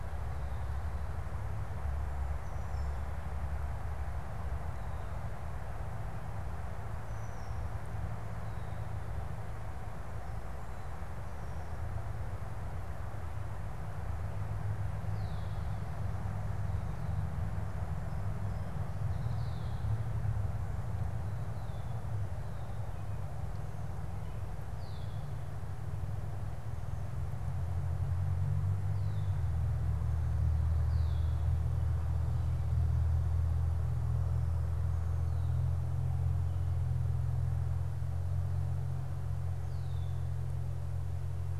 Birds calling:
unidentified bird, Red-winged Blackbird (Agelaius phoeniceus)

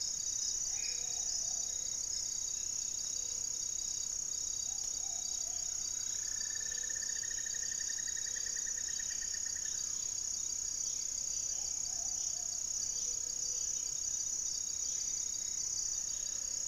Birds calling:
unidentified bird, Amazonian Trogon (Trogon ramonianus), Hauxwell's Thrush (Turdus hauxwelli), Black-faced Antthrush (Formicarius analis), Gray-fronted Dove (Leptotila rufaxilla), Mealy Parrot (Amazona farinosa), Cinnamon-throated Woodcreeper (Dendrexetastes rufigula)

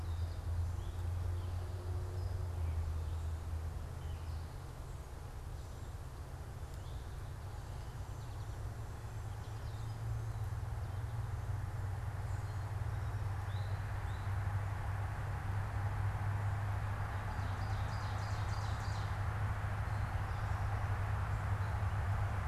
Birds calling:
American Goldfinch (Spinus tristis), Eastern Towhee (Pipilo erythrophthalmus), Ovenbird (Seiurus aurocapilla)

